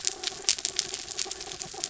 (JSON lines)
{"label": "anthrophony, mechanical", "recorder": "SoundTrap 300"}